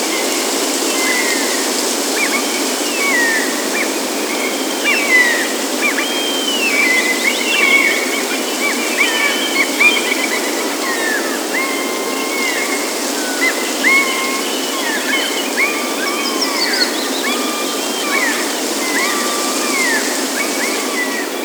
Are there animals making noises in the background?
yes